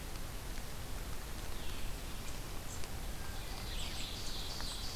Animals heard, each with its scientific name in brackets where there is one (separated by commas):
Ovenbird (Seiurus aurocapilla)